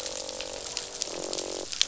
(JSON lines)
{"label": "biophony, croak", "recorder": "SoundTrap 500"}